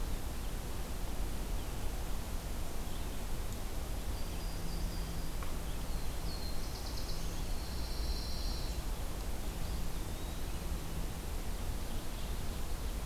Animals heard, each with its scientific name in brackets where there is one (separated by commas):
Yellow-rumped Warbler (Setophaga coronata), Pine Warbler (Setophaga pinus), Ovenbird (Seiurus aurocapilla), Black-throated Blue Warbler (Setophaga caerulescens), Eastern Wood-Pewee (Contopus virens)